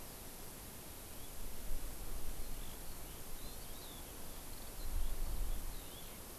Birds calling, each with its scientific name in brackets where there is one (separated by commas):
Eurasian Skylark (Alauda arvensis)